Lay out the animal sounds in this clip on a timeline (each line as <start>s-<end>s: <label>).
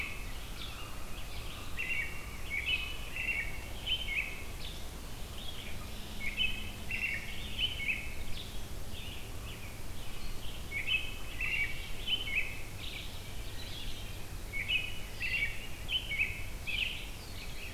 0.0s-3.3s: Common Raven (Corvus corax)
0.0s-17.7s: Red-eyed Vireo (Vireo olivaceus)
1.6s-4.8s: American Robin (Turdus migratorius)
5.7s-6.3s: Red-winged Blackbird (Agelaius phoeniceus)
6.1s-8.5s: American Robin (Turdus migratorius)
10.6s-13.1s: American Robin (Turdus migratorius)
13.4s-14.3s: Wood Thrush (Hylocichla mustelina)
14.4s-17.5s: American Robin (Turdus migratorius)